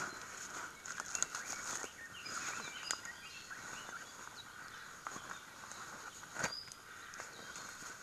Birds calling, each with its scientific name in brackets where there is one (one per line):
Iiwi (Drepanis coccinea)
Omao (Myadestes obscurus)
Red-billed Leiothrix (Leiothrix lutea)
Apapane (Himatione sanguinea)